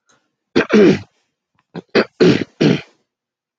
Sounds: Throat clearing